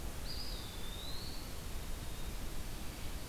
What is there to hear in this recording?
Eastern Wood-Pewee